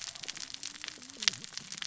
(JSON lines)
{"label": "biophony, cascading saw", "recorder": "SoundTrap 600 or HydroMoth"}